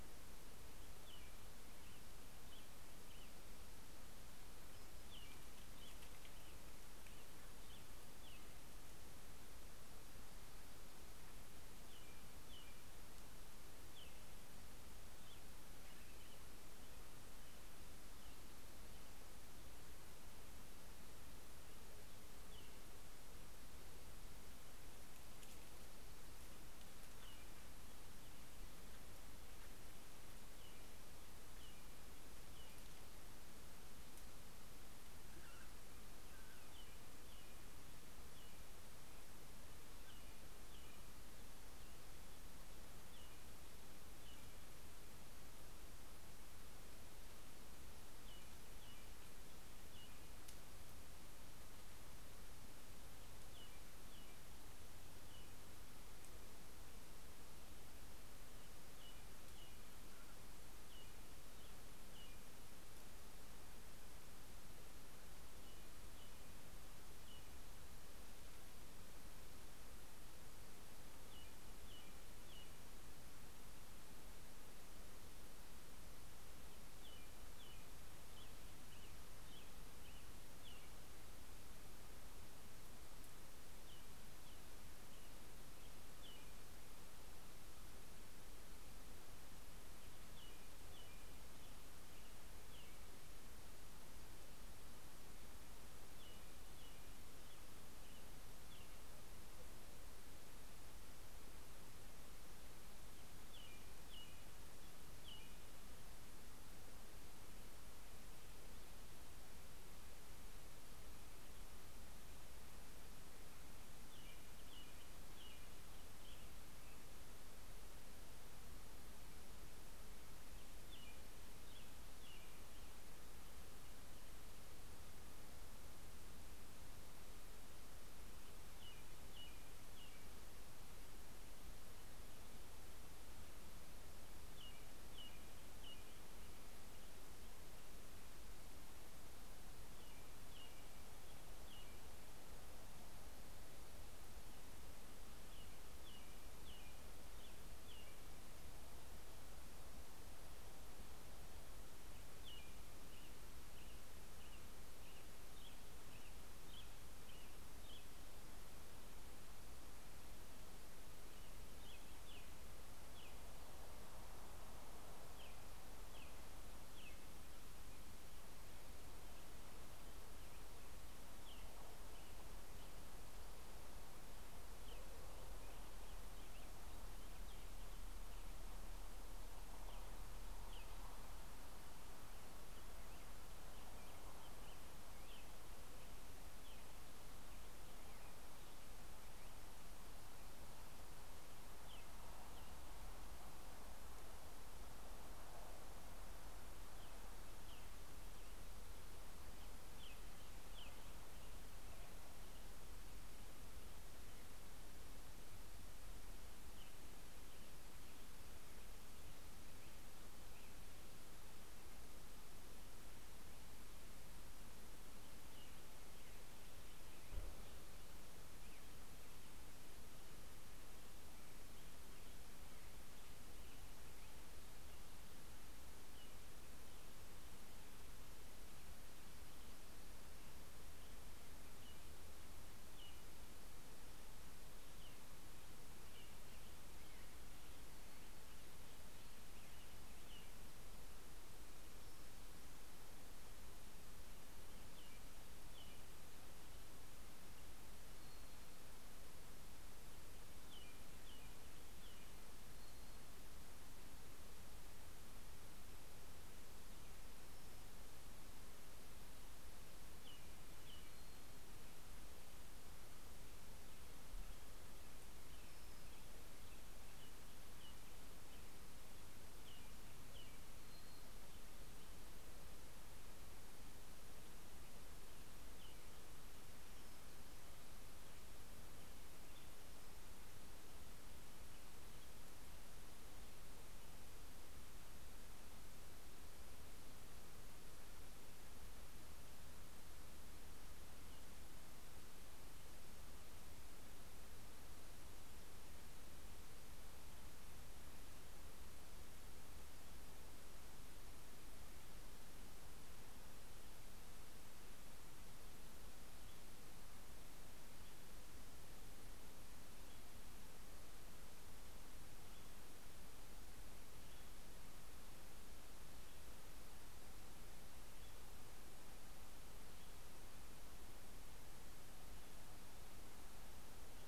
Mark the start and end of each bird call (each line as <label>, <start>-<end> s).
American Robin (Turdus migratorius), 0.0-23.2 s
American Robin (Turdus migratorius), 29.4-51.1 s
American Robin (Turdus migratorius), 52.3-81.9 s
American Robin (Turdus migratorius), 83.3-104.8 s
American Robin (Turdus migratorius), 113.4-123.8 s
American Robin (Turdus migratorius), 128.0-148.1 s
American Robin (Turdus migratorius), 151.3-168.0 s
American Robin (Turdus migratorius), 169.4-173.1 s
American Robin (Turdus migratorius), 174.2-190.0 s
American Robin (Turdus migratorius), 191.3-193.0 s
American Robin (Turdus migratorius), 196.1-201.5 s
American Robin (Turdus migratorius), 206.0-211.4 s
Black-headed Grosbeak (Pheucticus melanocephalus), 215.2-227.4 s
American Robin (Turdus migratorius), 231.4-240.8 s
American Robin (Turdus migratorius), 244.7-247.2 s
American Robin (Turdus migratorius), 250.2-253.2 s
American Robin (Turdus migratorius), 259.4-261.5 s
American Robin (Turdus migratorius), 264.6-271.2 s
American Robin (Turdus migratorius), 274.8-280.6 s